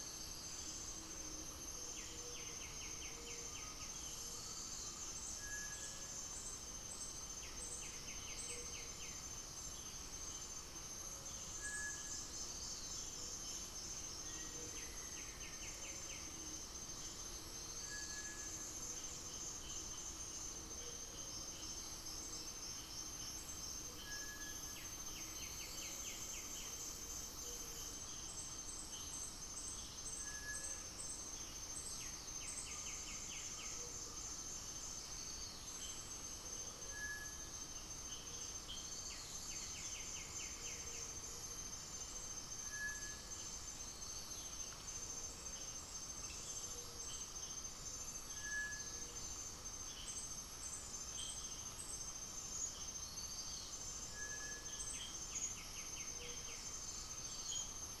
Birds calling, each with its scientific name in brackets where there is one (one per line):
Undulated Tinamou (Crypturellus undulatus)
Gray-fronted Dove (Leptotila rufaxilla)
Cinereous Tinamou (Crypturellus cinereus)
White-winged Becard (Pachyramphus polychopterus)
unidentified bird